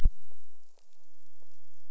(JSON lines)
{"label": "biophony", "recorder": "SoundTrap 300"}